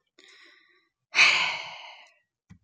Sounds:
Sigh